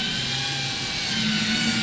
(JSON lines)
{"label": "anthrophony, boat engine", "recorder": "SoundTrap 500"}